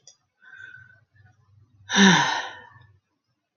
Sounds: Sigh